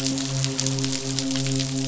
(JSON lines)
{"label": "biophony, midshipman", "recorder": "SoundTrap 500"}